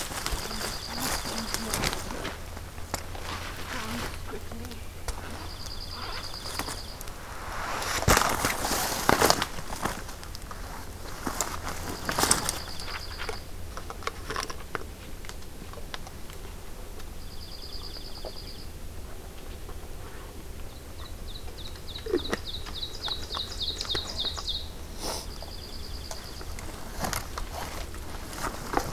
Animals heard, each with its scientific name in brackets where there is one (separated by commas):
Dark-eyed Junco (Junco hyemalis), Ovenbird (Seiurus aurocapilla)